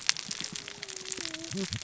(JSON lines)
{"label": "biophony, cascading saw", "recorder": "SoundTrap 600 or HydroMoth"}